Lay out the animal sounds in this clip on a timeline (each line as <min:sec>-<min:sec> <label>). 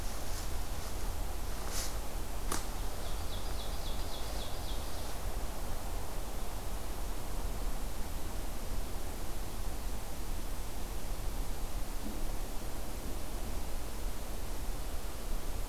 0:02.7-0:05.2 Ovenbird (Seiurus aurocapilla)